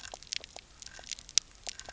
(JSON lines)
{"label": "biophony, pulse", "recorder": "SoundTrap 300"}